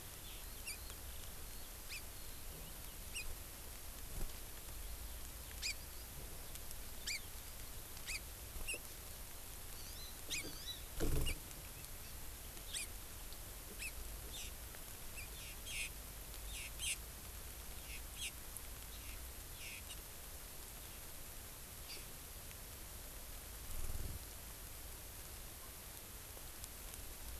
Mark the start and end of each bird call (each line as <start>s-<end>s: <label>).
0.0s-3.0s: Eurasian Skylark (Alauda arvensis)
0.6s-0.8s: Hawaii Amakihi (Chlorodrepanis virens)
1.9s-2.0s: Hawaii Amakihi (Chlorodrepanis virens)
3.1s-3.2s: Hawaii Amakihi (Chlorodrepanis virens)
5.6s-5.7s: Hawaii Amakihi (Chlorodrepanis virens)
7.0s-7.3s: Hawaii Amakihi (Chlorodrepanis virens)
8.1s-8.2s: Hawaii Amakihi (Chlorodrepanis virens)
8.6s-8.8s: Hawaii Amakihi (Chlorodrepanis virens)
9.7s-10.8s: Hawaii Amakihi (Chlorodrepanis virens)
12.6s-12.9s: Hawaii Amakihi (Chlorodrepanis virens)
13.8s-13.9s: Hawaii Amakihi (Chlorodrepanis virens)
21.9s-22.0s: Hawaii Amakihi (Chlorodrepanis virens)